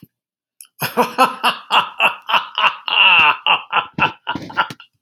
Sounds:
Laughter